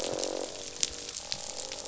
{"label": "biophony, croak", "recorder": "SoundTrap 500"}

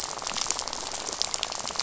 {"label": "biophony, rattle", "recorder": "SoundTrap 500"}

